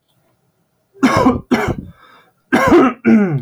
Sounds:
Cough